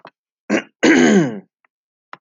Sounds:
Throat clearing